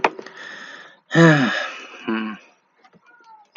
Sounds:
Sigh